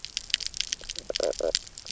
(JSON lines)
{"label": "biophony, knock croak", "recorder": "SoundTrap 300"}